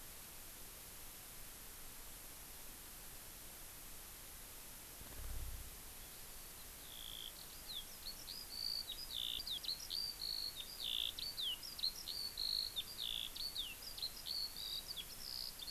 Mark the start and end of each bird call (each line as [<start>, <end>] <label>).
[5.98, 15.71] Eurasian Skylark (Alauda arvensis)